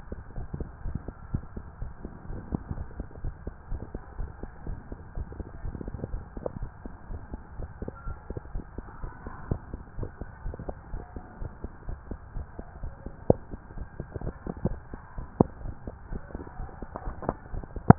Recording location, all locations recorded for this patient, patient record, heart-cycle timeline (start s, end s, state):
tricuspid valve (TV)
aortic valve (AV)+pulmonary valve (PV)+tricuspid valve (TV)+mitral valve (MV)
#Age: Child
#Sex: Male
#Height: 163.0 cm
#Weight: 84.5 kg
#Pregnancy status: False
#Murmur: Absent
#Murmur locations: nan
#Most audible location: nan
#Systolic murmur timing: nan
#Systolic murmur shape: nan
#Systolic murmur grading: nan
#Systolic murmur pitch: nan
#Systolic murmur quality: nan
#Diastolic murmur timing: nan
#Diastolic murmur shape: nan
#Diastolic murmur grading: nan
#Diastolic murmur pitch: nan
#Diastolic murmur quality: nan
#Outcome: Abnormal
#Campaign: 2015 screening campaign
0.00	9.96	unannotated
9.96	10.10	S1
10.10	10.19	systole
10.19	10.28	S2
10.28	10.44	diastole
10.44	10.56	S1
10.56	10.67	systole
10.67	10.74	S2
10.74	10.92	diastole
10.92	11.02	S1
11.02	11.14	systole
11.14	11.22	S2
11.22	11.40	diastole
11.40	11.52	S1
11.52	11.62	systole
11.62	11.72	S2
11.72	11.88	diastole
11.88	11.98	S1
11.98	12.09	systole
12.09	12.18	S2
12.18	12.34	diastole
12.34	12.46	S1
12.46	12.57	systole
12.57	12.64	S2
12.64	12.82	diastole
12.82	12.94	S1
12.94	13.04	systole
13.04	13.12	S2
13.12	13.32	diastole
13.32	13.39	S1
13.39	13.50	systole
13.50	13.58	S2
13.58	13.76	diastole
13.76	13.88	S1
13.88	13.98	systole
13.98	14.08	S2
14.08	14.24	diastole
14.24	14.34	S1
14.34	14.45	systole
14.45	14.54	S2
14.54	14.68	diastole
14.68	14.76	S1
14.76	14.92	systole
14.92	14.98	S2
14.98	15.15	diastole
15.15	15.25	S1
15.25	15.42	systole
15.42	15.50	S2
15.50	15.63	diastole
15.63	15.74	S1
15.74	15.86	systole
15.86	15.94	S2
15.94	16.10	diastole
16.10	16.22	S1
16.22	16.32	systole
16.32	16.39	S2
16.39	16.58	diastole
16.58	16.70	S1
16.70	16.81	systole
16.81	16.88	S2
16.88	17.05	diastole
17.05	17.16	S1
17.16	17.98	unannotated